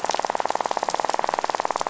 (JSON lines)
{"label": "biophony, rattle", "recorder": "SoundTrap 500"}